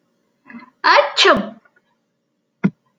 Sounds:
Sneeze